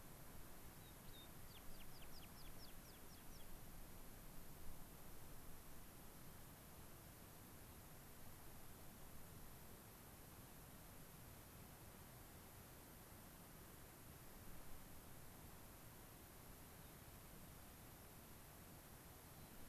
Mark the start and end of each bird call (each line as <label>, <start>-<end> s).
American Pipit (Anthus rubescens), 0.6-3.5 s
unidentified bird, 16.7-17.0 s
unidentified bird, 19.2-19.6 s